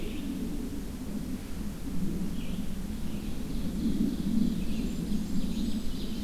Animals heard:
Blackburnian Warbler (Setophaga fusca), Red-eyed Vireo (Vireo olivaceus), Ovenbird (Seiurus aurocapilla)

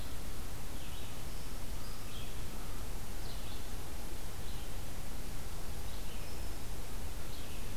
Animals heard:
American Crow (Corvus brachyrhynchos), Red-eyed Vireo (Vireo olivaceus), Black-throated Green Warbler (Setophaga virens)

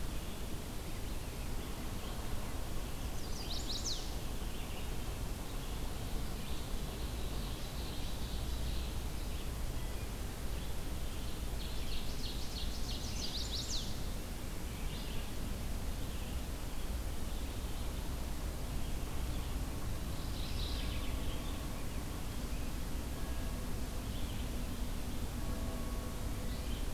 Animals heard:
Red-eyed Vireo (Vireo olivaceus), Chestnut-sided Warbler (Setophaga pensylvanica), Mourning Warbler (Geothlypis philadelphia), Ovenbird (Seiurus aurocapilla)

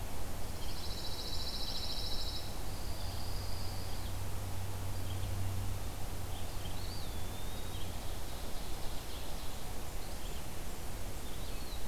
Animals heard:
Red-eyed Vireo (Vireo olivaceus), Eastern Wood-Pewee (Contopus virens), Blackburnian Warbler (Setophaga fusca), Pine Warbler (Setophaga pinus), Ovenbird (Seiurus aurocapilla)

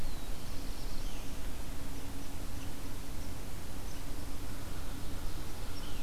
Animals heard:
unknown mammal, Black-throated Blue Warbler (Setophaga caerulescens)

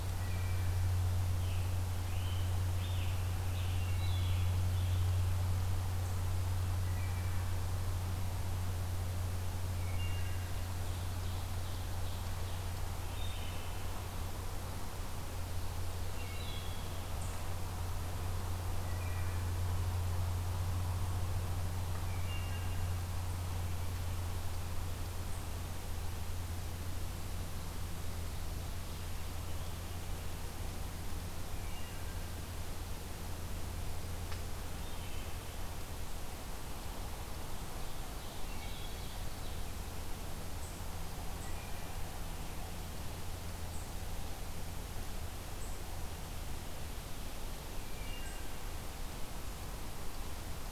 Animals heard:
Scarlet Tanager (Piranga olivacea), Ovenbird (Seiurus aurocapilla), Wood Thrush (Hylocichla mustelina)

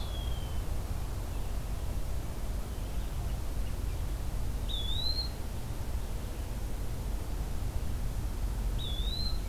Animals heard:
Eastern Wood-Pewee (Contopus virens)

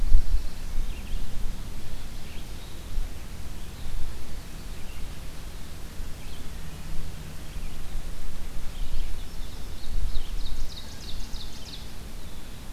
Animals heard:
Ovenbird (Seiurus aurocapilla), Black-throated Blue Warbler (Setophaga caerulescens), Red-eyed Vireo (Vireo olivaceus)

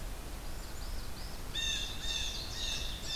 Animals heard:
Northern Parula (Setophaga americana), Blue Jay (Cyanocitta cristata), American Goldfinch (Spinus tristis)

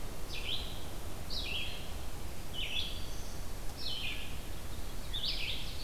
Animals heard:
Black-throated Green Warbler (Setophaga virens), Veery (Catharus fuscescens), Ovenbird (Seiurus aurocapilla), Red-eyed Vireo (Vireo olivaceus)

